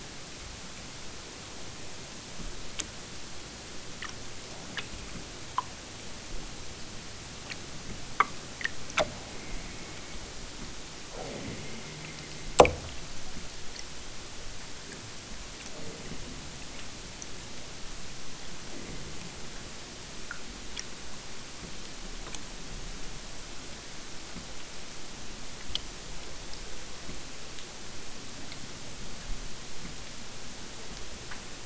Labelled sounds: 9.2	10.4	killer whale, southern Alaska resident, 1.6 to 3.3 kHz
11.1	12.5	killer whale, southern Alaska resident, 0 to 4.9 kHz

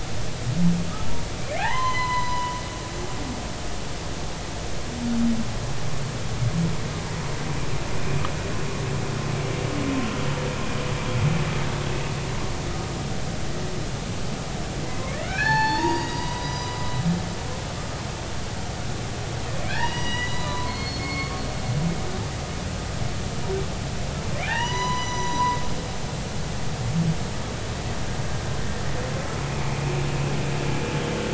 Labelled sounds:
1.0	2.6	humpback whale, 0.80 to 6.2 kHz
15.1	16.8	humpback whale, 0.80 to 6.0 kHz
19.7	21.4	humpback whale, 0.83 to 5.9 kHz
24.4	25.6	humpback whale, 0.80 to 7.0 kHz

